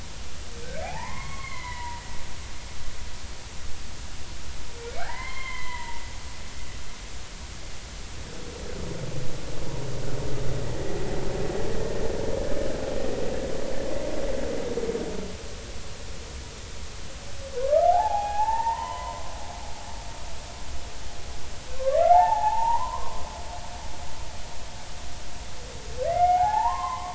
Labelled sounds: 0.7	2.0	humpback whale, 0.80 to 4.4 kHz
5.0	6.0	humpback whale, 0.80 to 3.3 kHz
17.6	19.3	humpback whale, 0.80 to 3.1 kHz
21.7	23.2	humpback whale, 0.80 to 2.2 kHz
26.1	27.1	humpback whale, 0.80 to 2.2 kHz

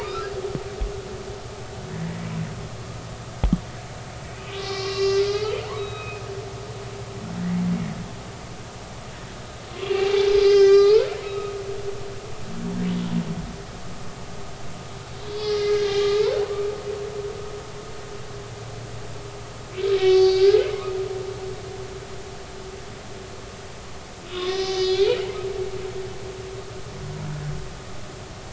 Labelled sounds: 2.0	2.3	humpback whale, 1.9 to 2.0 kHz
4.4	6.2	humpback whale, 1.1 to 5.6 kHz
9.9	11.5	humpback whale, 1.1 to 6.4 kHz
15.2	16.2	humpback whale, 1.6 to 4.7 kHz
20.0	21.3	humpback whale, 1.1 to 5.0 kHz
24.3	25.2	humpback whale, 1.0 to 3.7 kHz

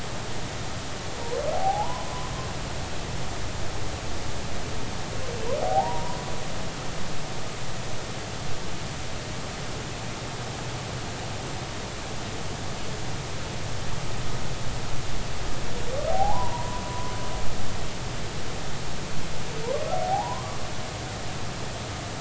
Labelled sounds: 1.5	2.3	humpback whale, 0.80 to 1.1 kHz
5.6	6.2	humpback whale, 0.80 to 1.0 kHz
16.1	17.1	humpback whale, 0.80 to 1.1 kHz
20.0	20.6	humpback whale, 0.80 to 1.2 kHz

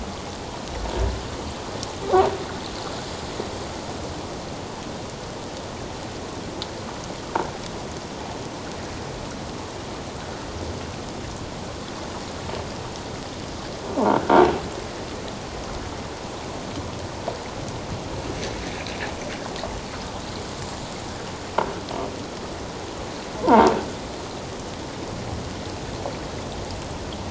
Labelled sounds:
23.4	23.7	croaking sound likely from a nearby submerged object, 0.78 to 1.1 kHz

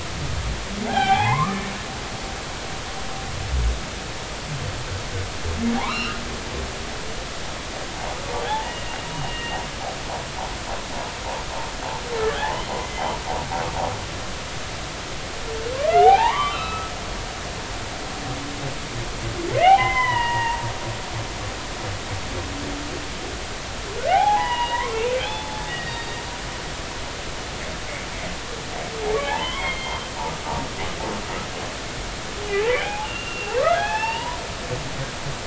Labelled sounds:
0.8	1.7	humpback whale, 0.80 to 3.3 kHz
5.8	6.2	humpback whale, 0.80 to 3.0 kHz
8.4	9.6	humpback whale, 0.80 to 2.9 kHz
12.4	13.1	humpback whale, 0.80 to 2.1 kHz
15.8	16.9	humpback whale, 0.80 to 4.1 kHz
19.5	20.6	humpback whale, 0.80 to 3.2 kHz
24.1	26.1	humpback whale, 0.80 to 3.9 kHz
29.2	30.1	humpback whale, 0.80 to 3.4 kHz
32.5	34.4	humpback whale, 0.80 to 3.6 kHz

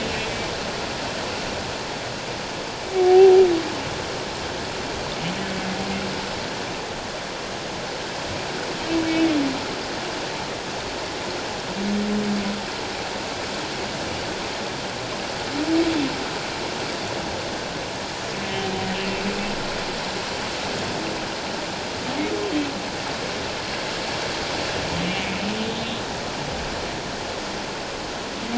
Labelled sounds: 2.9	3.4	humpback whale, 0.78 to 0.84 kHz
18.9	19.2	humpback whale, 2.7 to 2.8 kHz
25.1	25.3	humpback whale, 2.2 to 2.4 kHz

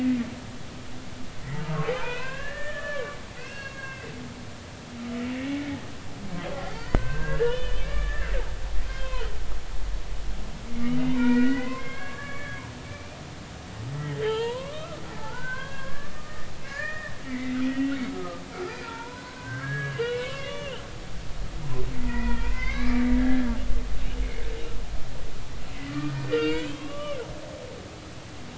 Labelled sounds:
0.6	4.1	humpback whale, 0.96 to 4.4 kHz
5.5	5.9	humpback whale, 1.8 to 2.3 kHz
6.7	8.3	humpback whale, 0.96 to 4.6 kHz
8.8	9.3	humpback whale, 2.4 to 3.2 kHz
11.1	13.2	humpback whale, 0.90 to 3.4 kHz
13.9	18.4	humpback whale, 0.80 to 3.4 kHz
18.8	20.8	humpback whale, 0.86 to 3.5 kHz
22.0	23.5	humpback whale, 0.90 to 2.7 kHz
25.9	27.2	humpback whale, 0.99 to 4.9 kHz

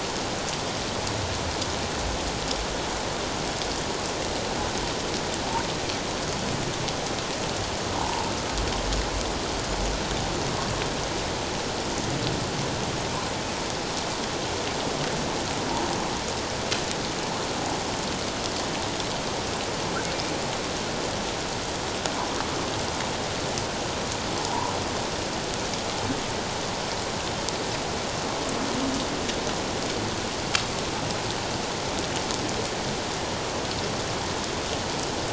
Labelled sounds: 7.9	8.3	humpback whale, 0.78 to 1.1 kHz

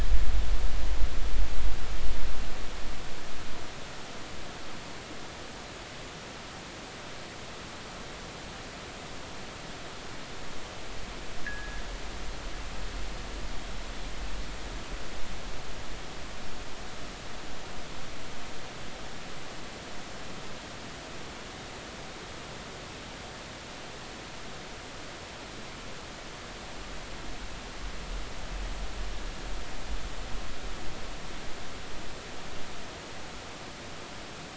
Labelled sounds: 11.4	11.8	fishing gear, 1.6 to 2.0 kHz

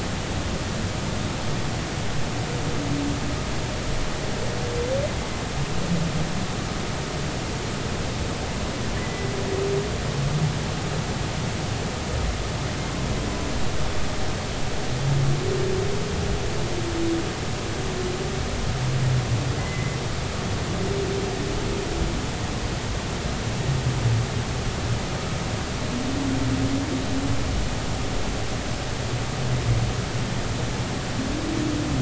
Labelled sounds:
8.9	9.3	humpback whale, 1.7 to 2.0 kHz
19.6	20.0	humpback whale, 1.9 to 2.1 kHz

